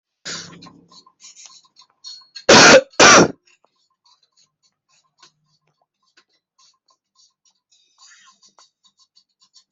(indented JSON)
{
  "expert_labels": [
    {
      "quality": "ok",
      "cough_type": "dry",
      "dyspnea": false,
      "wheezing": false,
      "stridor": false,
      "choking": false,
      "congestion": false,
      "nothing": true,
      "diagnosis": "COVID-19",
      "severity": "unknown"
    }
  ]
}